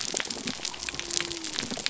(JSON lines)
{"label": "biophony", "recorder": "SoundTrap 300"}